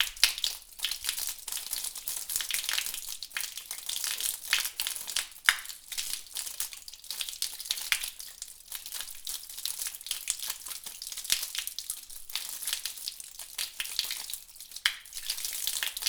What kind of fluid is continuously pouring down?
water